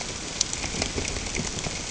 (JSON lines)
{"label": "ambient", "recorder": "HydroMoth"}